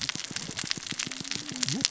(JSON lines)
{"label": "biophony, cascading saw", "recorder": "SoundTrap 600 or HydroMoth"}